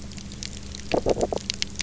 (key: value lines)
label: biophony, knock croak
recorder: SoundTrap 300